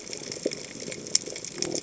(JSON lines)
{"label": "biophony", "recorder": "HydroMoth"}